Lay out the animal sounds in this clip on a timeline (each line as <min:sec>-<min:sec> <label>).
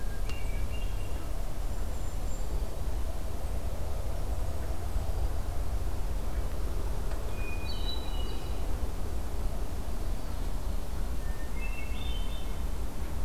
0:00.0-0:01.6 Hermit Thrush (Catharus guttatus)
0:01.5-0:02.7 Golden-crowned Kinglet (Regulus satrapa)
0:07.2-0:08.8 Hermit Thrush (Catharus guttatus)
0:10.7-0:12.7 Hermit Thrush (Catharus guttatus)